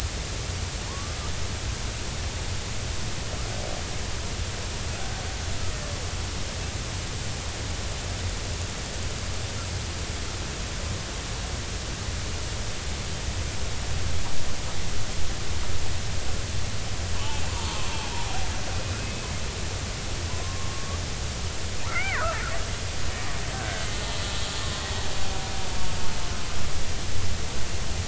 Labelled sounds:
17.2	17.9	killer whale, Bigg's (transient), 0.83 to 3.2 kHz
20.0	20.9	killer whale, Bigg's (transient), 0.93 to 2.6 kHz
21.9	22.4	killer whale, Bigg's (transient), 0.93 to 2.4 kHz
23.5	23.9	killer whale, Bigg's (transient), 1.5 to 1.7 kHz
24.6	25.1	killer whale, Bigg's (transient), 0.99 to 2.0 kHz

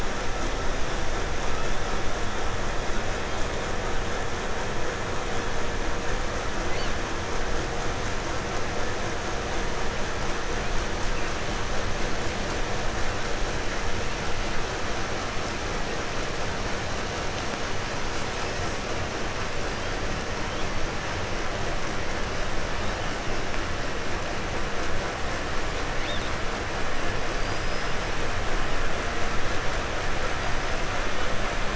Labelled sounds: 6.6	7.0	killer whale, 1.5 to 4.9 kHz
18.1	18.8	killer whale, 2.1 to 8.0 kHz
19.6	20.7	killer whale, 2.6 to 6.0 kHz
22.6	23.1	killer whale, 3.2 to 4.9 kHz
26.0	26.4	killer whale, 1.5 to 5.5 kHz
27.2	28.2	killer whale, 4.2 to 6.2 kHz
30.3	30.9	killer whale, 4.6 to 5.5 kHz

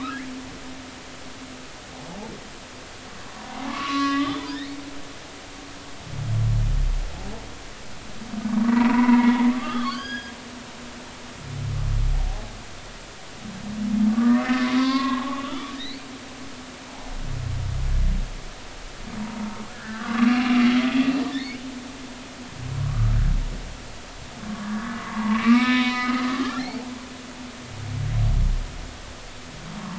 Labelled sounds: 3.4	4.7	humpback whale, 0.80 to 3.6 kHz
8.7	10.3	humpback whale, 0.90 to 6.7 kHz
14.1	16.0	humpback whale, 0.80 to 4.5 kHz
16.8	17.1	humpback whale, 0.80 to 1.0 kHz
19.7	20.5	humpback whale, 1.1 to 2.8 kHz
21.2	21.6	humpback whale, 1.7 to 2.5 kHz
22.8	23.1	humpback whale, 0.99 to 1.3 kHz
24.5	26.8	humpback whale, 0.83 to 4.7 kHz

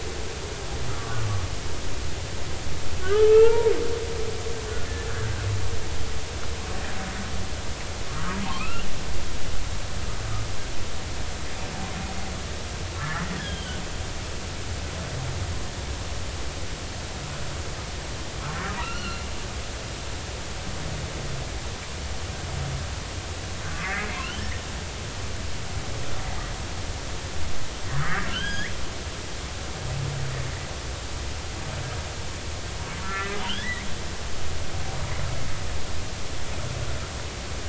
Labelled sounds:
1.0	1.2	humpback whale, 1.1 to 1.2 kHz
3.0	3.7	humpback whale, 0.83 to 2.8 kHz
8.1	8.9	humpback whale, 0.80 to 3.0 kHz
13.0	13.8	humpback whale, 1.6 to 3.5 kHz
18.8	19.2	humpback whale, 1.2 to 4.4 kHz
23.7	24.5	humpback whale, 1.1 to 3.3 kHz
28.0	28.7	humpback whale, 1.2 to 6.8 kHz
33.0	33.9	humpback whale, 1.1 to 3.5 kHz

